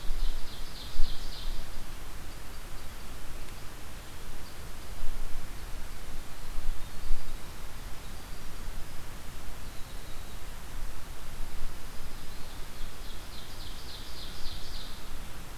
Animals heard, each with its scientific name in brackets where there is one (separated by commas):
Black-throated Green Warbler (Setophaga virens), unknown mammal, Ovenbird (Seiurus aurocapilla)